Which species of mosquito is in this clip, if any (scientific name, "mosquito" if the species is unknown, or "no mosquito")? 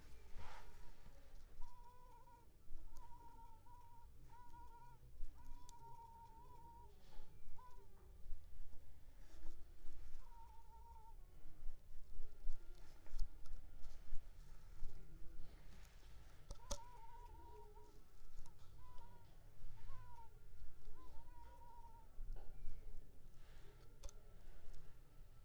Culex pipiens complex